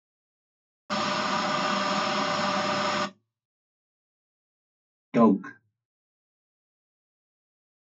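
At 0.9 seconds, the sound of an aircraft engine is heard. Then, at 5.1 seconds, someone says "dog."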